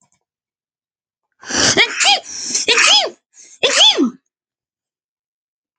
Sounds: Sneeze